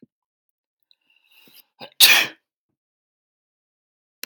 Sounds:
Sneeze